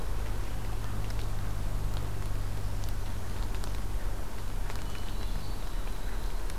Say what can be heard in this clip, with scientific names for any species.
Catharus guttatus, Agelaius phoeniceus